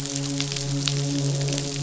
{"label": "biophony, midshipman", "recorder": "SoundTrap 500"}
{"label": "biophony, croak", "recorder": "SoundTrap 500"}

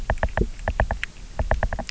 {"label": "biophony, knock", "recorder": "SoundTrap 300"}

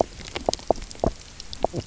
{"label": "biophony, knock croak", "recorder": "SoundTrap 300"}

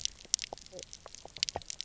{"label": "biophony, knock croak", "recorder": "SoundTrap 300"}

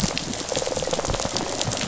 {"label": "biophony, rattle response", "recorder": "SoundTrap 500"}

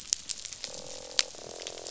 {"label": "biophony, croak", "recorder": "SoundTrap 500"}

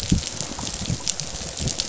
{"label": "biophony", "recorder": "SoundTrap 500"}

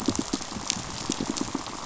{"label": "biophony, pulse", "recorder": "SoundTrap 500"}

